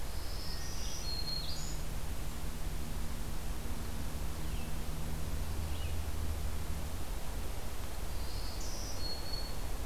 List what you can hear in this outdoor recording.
Black-throated Green Warbler, Red-eyed Vireo